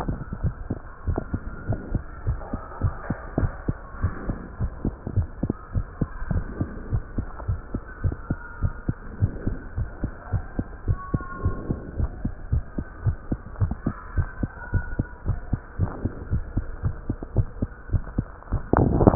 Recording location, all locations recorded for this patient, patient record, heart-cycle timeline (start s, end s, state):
mitral valve (MV)
pulmonary valve (PV)+tricuspid valve (TV)+mitral valve (MV)
#Age: Child
#Sex: Male
#Height: 125.0 cm
#Weight: 22.5 kg
#Pregnancy status: False
#Murmur: Absent
#Murmur locations: nan
#Most audible location: nan
#Systolic murmur timing: nan
#Systolic murmur shape: nan
#Systolic murmur grading: nan
#Systolic murmur pitch: nan
#Systolic murmur quality: nan
#Diastolic murmur timing: nan
#Diastolic murmur shape: nan
#Diastolic murmur grading: nan
#Diastolic murmur pitch: nan
#Diastolic murmur quality: nan
#Outcome: Normal
#Campaign: 2015 screening campaign
0.00	8.45	unannotated
8.45	8.60	diastole
8.60	8.74	S1
8.74	8.86	systole
8.86	8.96	S2
8.96	9.20	diastole
9.20	9.32	S1
9.32	9.44	systole
9.44	9.56	S2
9.56	9.76	diastole
9.76	9.89	S1
9.89	10.02	systole
10.02	10.12	S2
10.12	10.30	diastole
10.30	10.44	S1
10.44	10.56	systole
10.56	10.64	S2
10.64	10.86	diastole
10.86	11.00	S1
11.00	11.12	systole
11.12	11.24	S2
11.24	11.42	diastole
11.42	11.56	S1
11.56	11.68	systole
11.68	11.78	S2
11.78	11.97	diastole
11.97	12.09	S1
12.09	12.22	systole
12.22	12.33	S2
12.33	12.50	diastole
12.50	12.64	S1
12.64	12.77	systole
12.77	12.86	S2
12.86	13.03	diastole
13.03	13.18	S1
13.18	13.28	systole
13.28	13.41	S2
13.41	13.58	diastole
13.58	13.71	S1
13.71	13.84	systole
13.84	13.94	S2
13.94	14.14	diastole
14.14	14.28	S1
14.28	14.38	systole
14.38	14.48	S2
14.48	14.68	diastole
14.68	14.86	S1
14.86	14.98	systole
14.98	15.08	S2
15.08	15.26	diastole
15.26	15.38	S1
15.38	15.50	systole
15.50	15.61	S2
15.61	15.78	diastole
15.78	15.90	S1
15.90	16.02	systole
16.02	16.12	S2
16.12	16.30	diastole
16.30	16.42	S1
16.42	16.54	systole
16.54	16.66	S2
16.66	16.83	diastole
16.83	16.96	S1
16.96	17.08	systole
17.08	17.17	S2
17.17	17.35	diastole
17.35	17.48	S1
17.48	17.60	systole
17.60	17.70	S2
17.70	17.79	diastole
17.79	19.15	unannotated